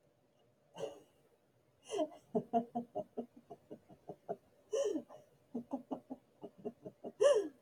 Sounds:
Laughter